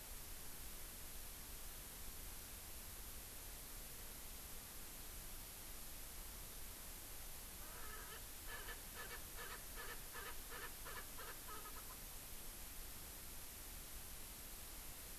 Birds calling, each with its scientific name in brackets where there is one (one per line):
Erckel's Francolin (Pternistis erckelii)